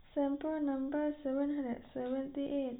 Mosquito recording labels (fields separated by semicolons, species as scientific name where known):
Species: no mosquito; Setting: cup